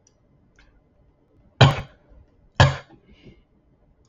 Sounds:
Cough